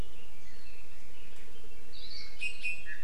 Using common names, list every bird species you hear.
Hawaii Akepa, Apapane